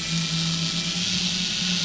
{"label": "anthrophony, boat engine", "recorder": "SoundTrap 500"}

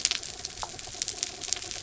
{"label": "anthrophony, mechanical", "recorder": "SoundTrap 300"}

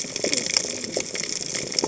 {"label": "biophony, cascading saw", "recorder": "HydroMoth"}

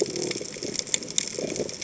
{"label": "biophony", "recorder": "HydroMoth"}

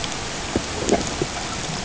{"label": "ambient", "recorder": "HydroMoth"}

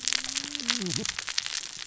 {"label": "biophony, cascading saw", "recorder": "SoundTrap 600 or HydroMoth"}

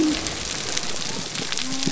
{"label": "biophony", "recorder": "SoundTrap 300"}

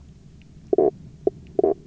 {"label": "biophony, knock croak", "recorder": "SoundTrap 300"}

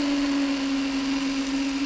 {"label": "anthrophony, boat engine", "recorder": "SoundTrap 300"}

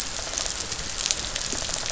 {"label": "biophony", "recorder": "SoundTrap 500"}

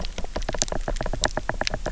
{"label": "biophony, knock", "recorder": "SoundTrap 300"}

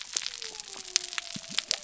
{"label": "biophony", "recorder": "SoundTrap 300"}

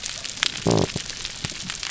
{"label": "biophony", "recorder": "SoundTrap 300"}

